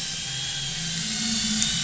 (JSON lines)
{"label": "anthrophony, boat engine", "recorder": "SoundTrap 500"}